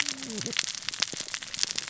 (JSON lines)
{"label": "biophony, cascading saw", "recorder": "SoundTrap 600 or HydroMoth"}